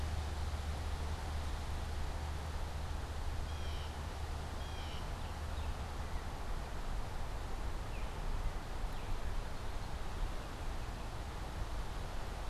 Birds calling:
Blue Jay (Cyanocitta cristata), Baltimore Oriole (Icterus galbula)

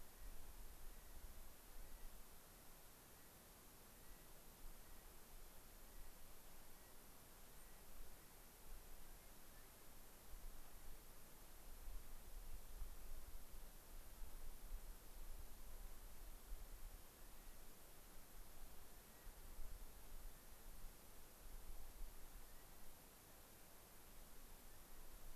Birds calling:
unidentified bird, Clark's Nutcracker (Nucifraga columbiana)

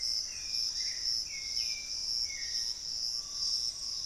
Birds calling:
Gray Antbird (Cercomacra cinerascens), Piratic Flycatcher (Legatus leucophaius), Hauxwell's Thrush (Turdus hauxwelli), Screaming Piha (Lipaugus vociferans)

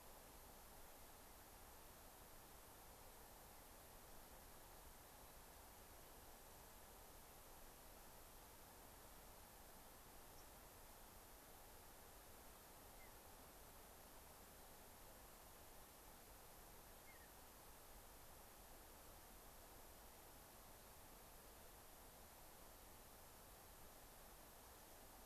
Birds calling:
White-crowned Sparrow (Zonotrichia leucophrys), Mountain Bluebird (Sialia currucoides)

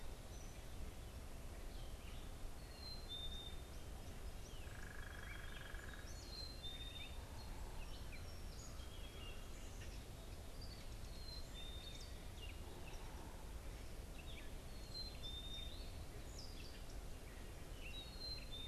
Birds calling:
Black-capped Chickadee (Poecile atricapillus), unidentified bird, Gray Catbird (Dumetella carolinensis)

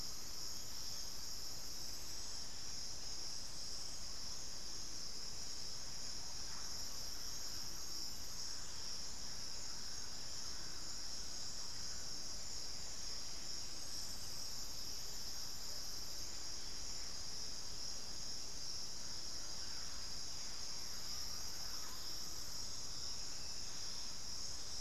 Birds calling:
unidentified bird, Undulated Tinamou (Crypturellus undulatus), Russet-backed Oropendola (Psarocolius angustifrons)

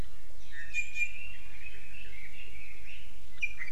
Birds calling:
Red-billed Leiothrix (Leiothrix lutea), Iiwi (Drepanis coccinea)

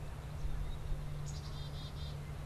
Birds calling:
Black-capped Chickadee (Poecile atricapillus)

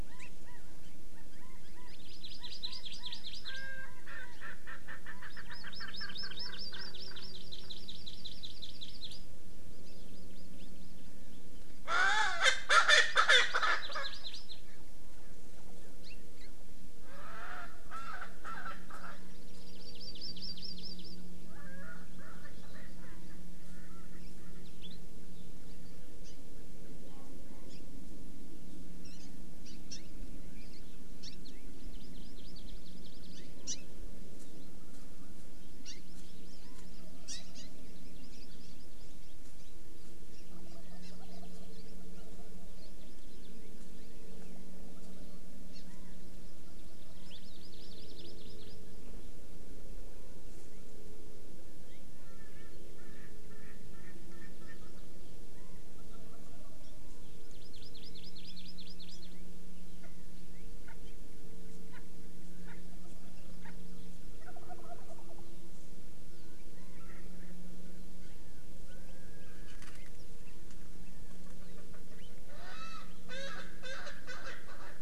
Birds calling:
Wild Turkey (Meleagris gallopavo), Erckel's Francolin (Pternistis erckelii), Hawaii Amakihi (Chlorodrepanis virens), Chinese Hwamei (Garrulax canorus)

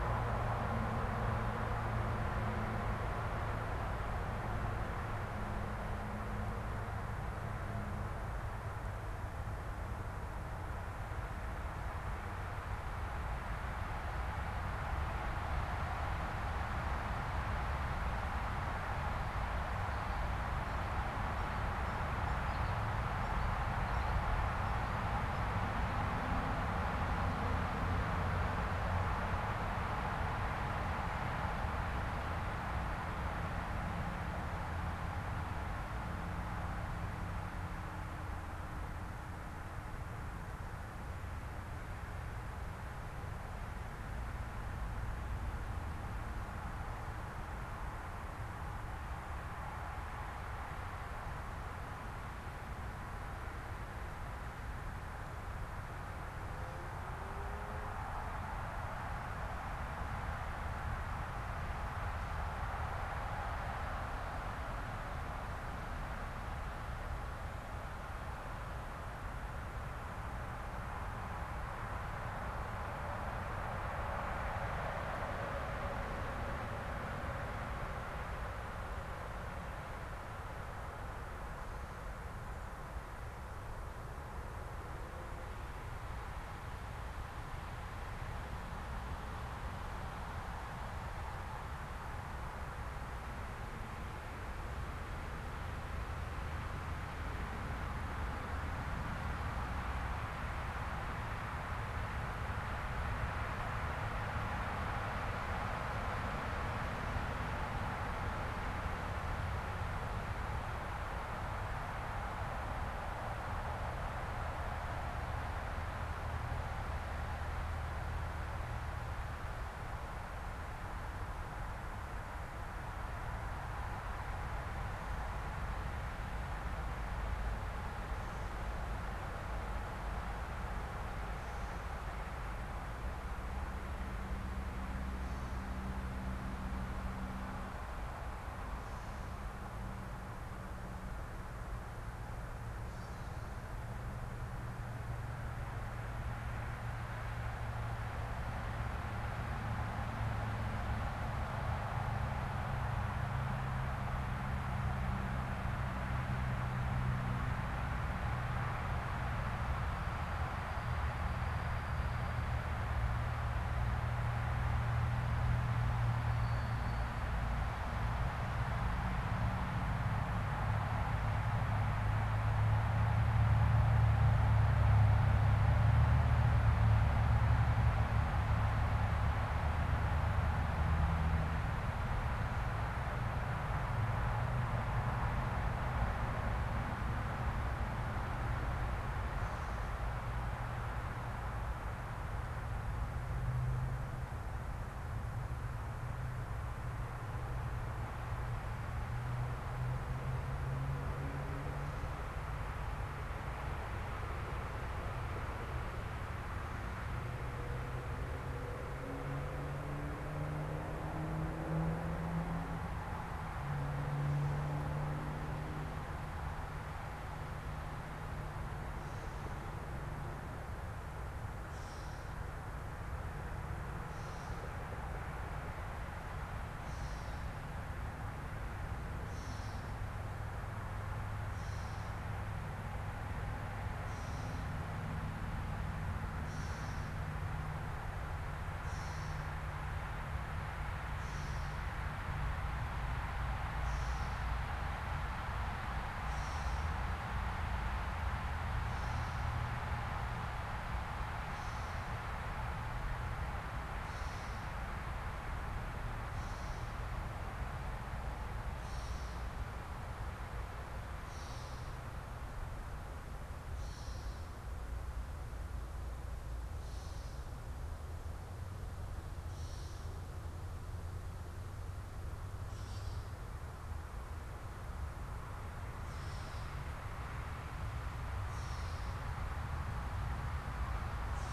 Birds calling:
Gray Catbird (Dumetella carolinensis), unidentified bird

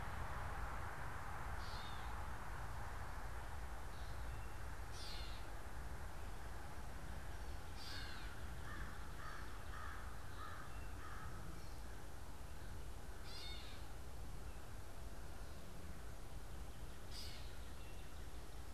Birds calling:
Gray Catbird (Dumetella carolinensis), American Crow (Corvus brachyrhynchos)

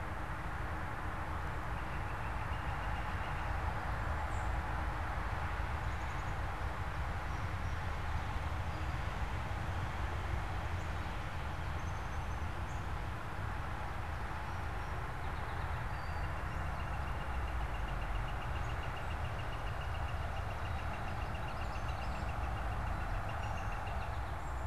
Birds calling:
Song Sparrow (Melospiza melodia), Black-capped Chickadee (Poecile atricapillus), unidentified bird, Common Yellowthroat (Geothlypis trichas), Northern Flicker (Colaptes auratus)

